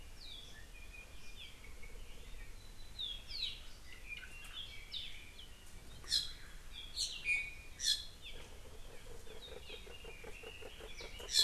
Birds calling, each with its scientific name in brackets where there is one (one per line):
Iiwi (Drepanis coccinea)
Apapane (Himatione sanguinea)
Red-billed Leiothrix (Leiothrix lutea)